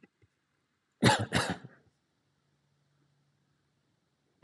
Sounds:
Throat clearing